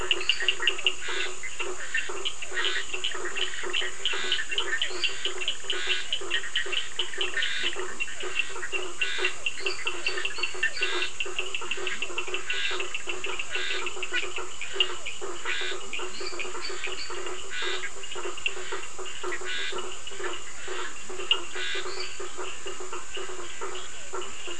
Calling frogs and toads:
Physalaemus cuvieri (Leptodactylidae), Sphaenorhynchus surdus (Hylidae), Scinax perereca (Hylidae), Boana faber (Hylidae), Dendropsophus minutus (Hylidae), Boana bischoffi (Hylidae), Leptodactylus latrans (Leptodactylidae)

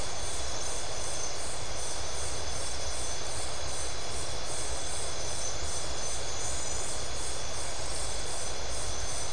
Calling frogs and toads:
none

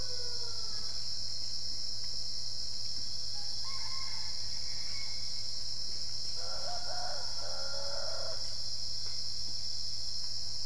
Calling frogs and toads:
none

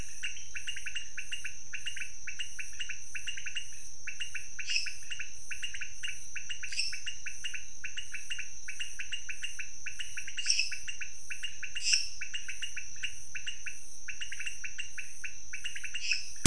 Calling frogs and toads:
Leptodactylus podicipinus (Leptodactylidae), Dendropsophus minutus (Hylidae)

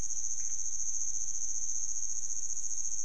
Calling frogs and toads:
Leptodactylus podicipinus (Leptodactylidae)

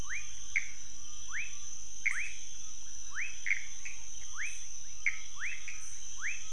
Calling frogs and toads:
Leptodactylus fuscus (Leptodactylidae), Pithecopus azureus (Hylidae)

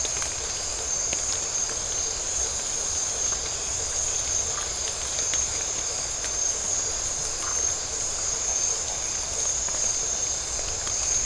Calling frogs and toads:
Phyllomedusa distincta (Hylidae)

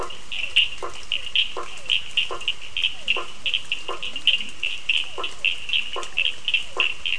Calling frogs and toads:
Boana faber (Hylidae), Physalaemus cuvieri (Leptodactylidae), Sphaenorhynchus surdus (Hylidae)

